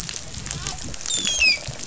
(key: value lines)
label: biophony
recorder: SoundTrap 500

label: biophony, dolphin
recorder: SoundTrap 500